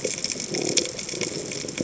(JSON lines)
{"label": "biophony", "recorder": "HydroMoth"}